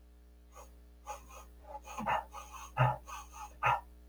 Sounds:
Sniff